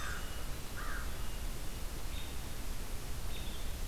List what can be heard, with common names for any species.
American Crow, American Robin